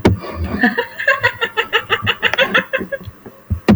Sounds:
Laughter